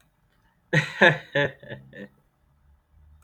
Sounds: Laughter